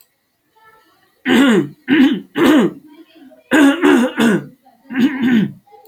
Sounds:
Throat clearing